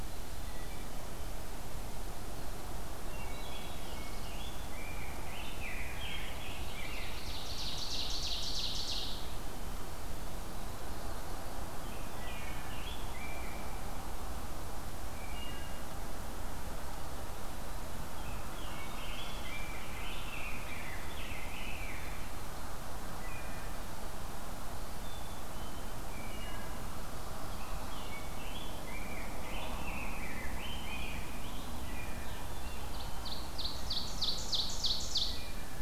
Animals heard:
Black-throated Blue Warbler (Setophaga caerulescens), Ovenbird (Seiurus aurocapilla), Rose-breasted Grosbeak (Pheucticus ludovicianus), Black-capped Chickadee (Poecile atricapillus), Wood Thrush (Hylocichla mustelina)

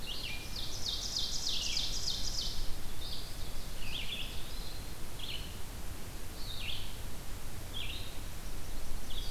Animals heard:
Red-eyed Vireo (Vireo olivaceus), Yellow-rumped Warbler (Setophaga coronata), Ovenbird (Seiurus aurocapilla), Eastern Wood-Pewee (Contopus virens)

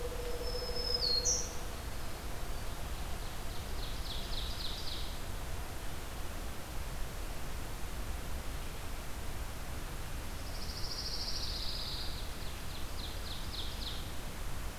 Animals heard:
Ovenbird (Seiurus aurocapilla), Black-throated Green Warbler (Setophaga virens), Pine Warbler (Setophaga pinus)

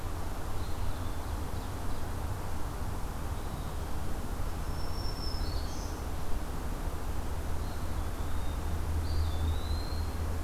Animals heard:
Eastern Wood-Pewee (Contopus virens), Black-throated Green Warbler (Setophaga virens)

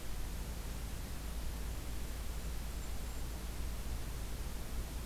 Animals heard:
Golden-crowned Kinglet (Regulus satrapa)

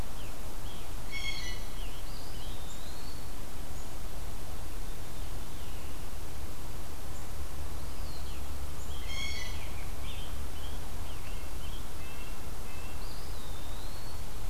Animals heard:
Blue Jay (Cyanocitta cristata), Red-breasted Nuthatch (Sitta canadensis), Eastern Wood-Pewee (Contopus virens), Veery (Catharus fuscescens), Scarlet Tanager (Piranga olivacea)

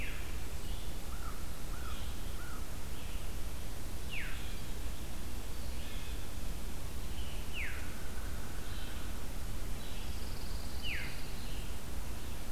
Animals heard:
Pine Warbler (Setophaga pinus), Veery (Catharus fuscescens), American Crow (Corvus brachyrhynchos), Red-eyed Vireo (Vireo olivaceus)

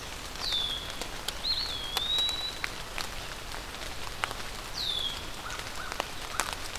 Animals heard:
American Crow (Corvus brachyrhynchos), Eastern Wood-Pewee (Contopus virens), Red-winged Blackbird (Agelaius phoeniceus)

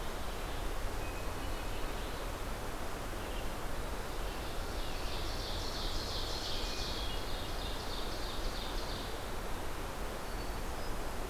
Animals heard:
Ovenbird (Seiurus aurocapilla), Hermit Thrush (Catharus guttatus)

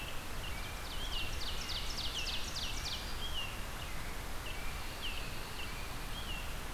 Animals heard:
Ovenbird (Seiurus aurocapilla), American Robin (Turdus migratorius), Black-throated Green Warbler (Setophaga virens)

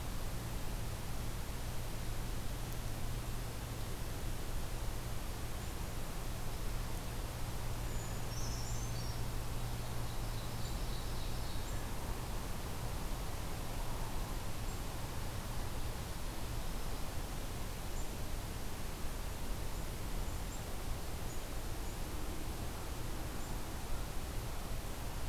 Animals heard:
Brown Creeper (Certhia americana), Ovenbird (Seiurus aurocapilla)

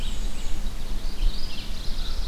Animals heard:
Red-eyed Vireo (Vireo olivaceus), Black-and-white Warbler (Mniotilta varia), Mourning Warbler (Geothlypis philadelphia)

